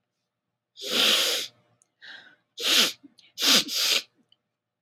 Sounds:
Sniff